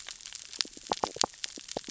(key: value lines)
label: biophony, stridulation
recorder: SoundTrap 600 or HydroMoth